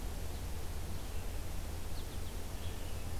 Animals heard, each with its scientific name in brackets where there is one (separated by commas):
Red-eyed Vireo (Vireo olivaceus), American Goldfinch (Spinus tristis)